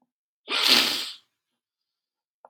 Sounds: Sniff